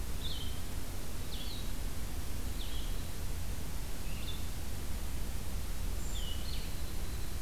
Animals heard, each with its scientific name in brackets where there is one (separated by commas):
Blue-headed Vireo (Vireo solitarius), Brown Creeper (Certhia americana), Winter Wren (Troglodytes hiemalis)